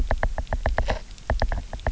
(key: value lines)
label: biophony, knock
recorder: SoundTrap 300